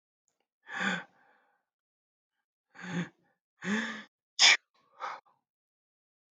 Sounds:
Sneeze